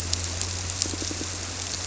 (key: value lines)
label: biophony
recorder: SoundTrap 300